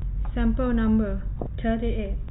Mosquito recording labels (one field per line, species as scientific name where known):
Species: no mosquito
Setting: cup